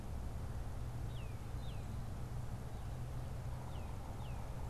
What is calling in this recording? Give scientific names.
Baeolophus bicolor